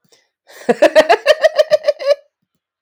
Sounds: Laughter